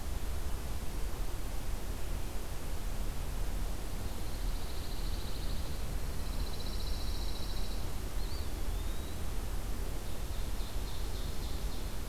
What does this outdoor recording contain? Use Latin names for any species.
Setophaga pinus, Contopus virens, Seiurus aurocapilla